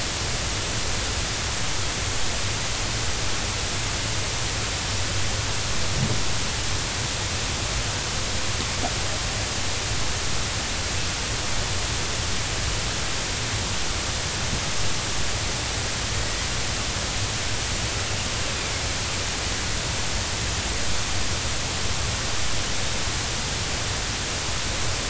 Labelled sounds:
18.5	18.7	killer whale, northern resident, 2.3 to 2.6 kHz

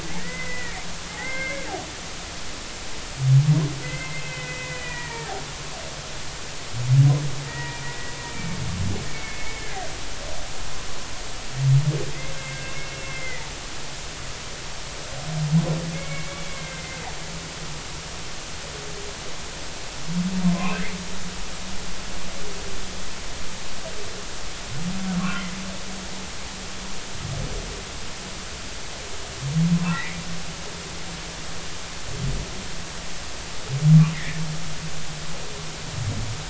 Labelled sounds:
0.2	1.7	humpback whale, 1.5 to 2.5 kHz
3.8	5.4	humpback whale, 1.6 to 2.7 kHz
7.5	9.7	humpback whale, 0.90 to 2.4 kHz
12.4	13.5	humpback whale, 1.9 to 2.2 kHz
15.9	17.0	humpback whale, 1.5 to 3.5 kHz
25.2	25.5	humpback whale, 1.0 to 1.5 kHz
29.7	30.2	humpback whale, 0.83 to 2.5 kHz
34.1	34.4	humpback whale, 1.7 to 2.2 kHz

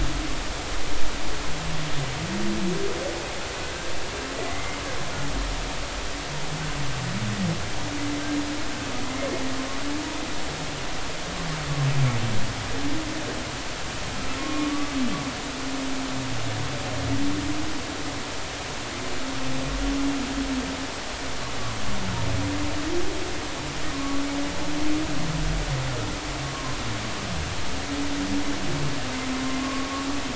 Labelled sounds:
3.6	4.8	humpback whale, 1.5 to 2.2 kHz
14.4	14.9	humpback whale, 1.0 to 1.2 kHz
23.9	24.2	humpback whale, 1.0 to 1.2 kHz
26.4	26.8	humpback whale, 0.96 to 1.2 kHz
29.6	30.1	humpback whale, 1.0 to 1.2 kHz

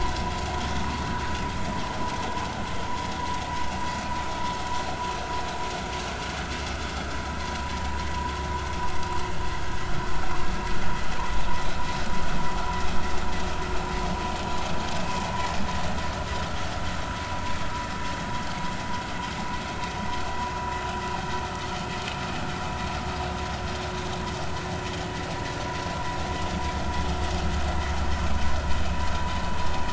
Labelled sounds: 0.8	1.1	vessel noise, 1.1 to 1.3 kHz

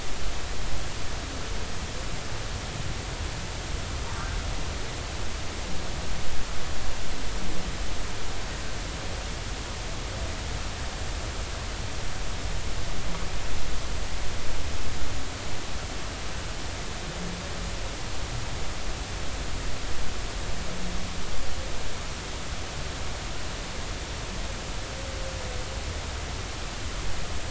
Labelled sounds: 4.1	4.4	humpback whale, 1.4 to 1.6 kHz

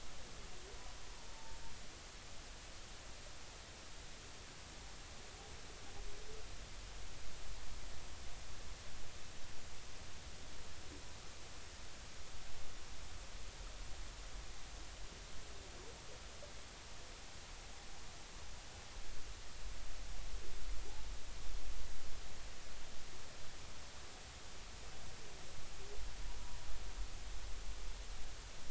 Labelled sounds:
1.1	1.6	humpback whale, 0.83 to 1.0 kHz

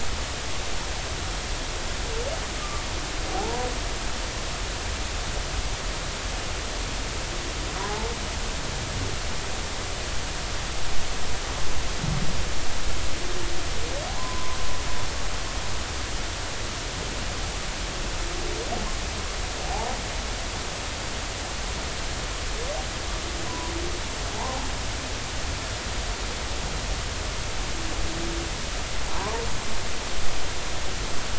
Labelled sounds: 3.3	3.7	humpback whale, 0.80 to 1.0 kHz
14.2	14.6	humpback whale, 0.93 to 1.1 kHz
19.7	19.9	humpback whale, 0.80 to 1.0 kHz
23.5	24.6	humpback whale, 0.80 to 1.1 kHz

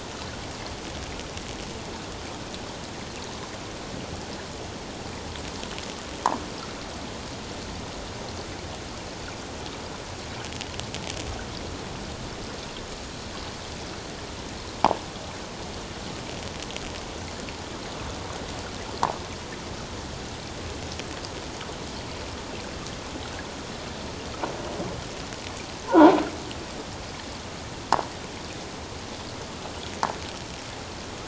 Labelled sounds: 25.8	26.1	croaking sound likely from a nearby submerged object, 0.78 to 1.2 kHz

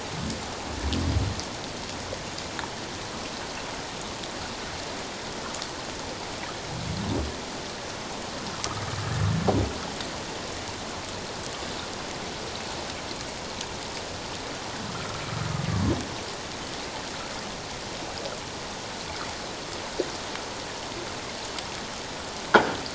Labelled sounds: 14.9	15.2	humpback whale, 1.2 to 1.4 kHz

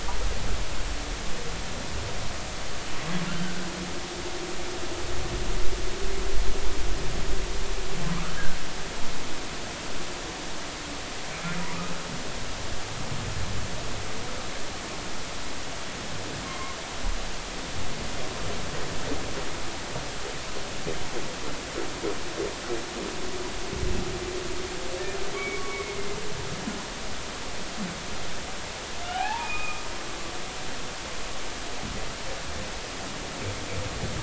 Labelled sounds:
16.5	16.8	humpback whale, 0.99 to 2.2 kHz
25.4	26.0	humpback whale, 1.1 to 2.3 kHz
29.1	29.8	humpback whale, 0.80 to 2.6 kHz

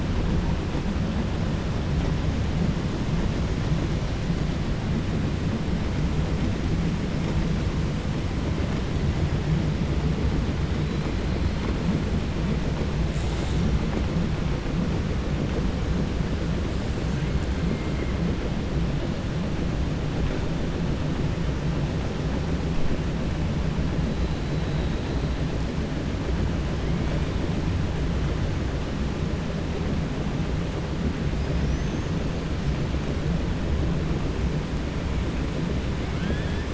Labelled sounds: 31.5	32.1	killer whale, 5.0 to 6.6 kHz
36.1	36.7	killer whale, 0.62 to 3.6 kHz

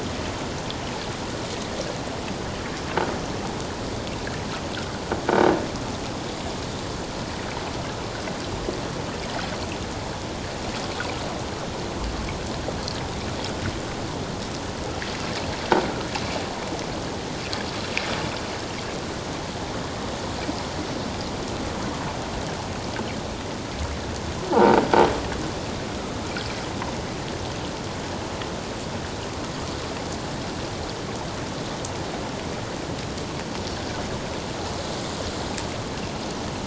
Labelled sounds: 24.5	24.8	croaking sound likely from a nearby submerged object, 1.3 to 1.5 kHz

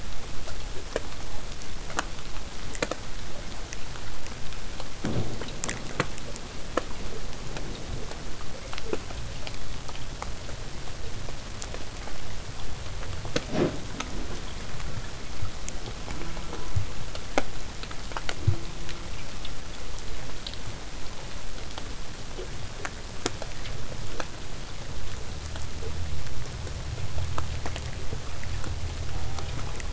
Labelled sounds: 16.0	16.9	killer whale, southern resident, J pod, call S04, 0.15 to 2.5 kHz
18.4	19.3	killer whale, southern resident, J pod, call S04, 0.15 to 1.7 kHz
29.1	29.8	killer whale, southern resident, J pod, call S04, 0.23 to 2.4 kHz

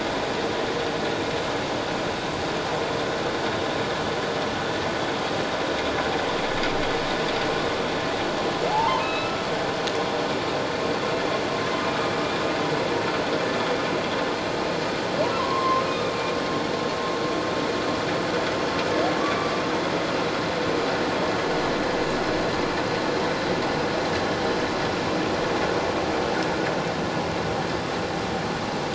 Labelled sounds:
8.7	9.4	humpback whale, 0.78 to 4.0 kHz
15.4	16.3	humpback whale, 0.94 to 3.7 kHz
19.2	19.5	humpback whale, 1.1 to 1.2 kHz

